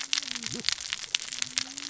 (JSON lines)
{"label": "biophony, cascading saw", "recorder": "SoundTrap 600 or HydroMoth"}